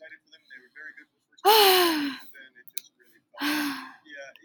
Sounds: Sigh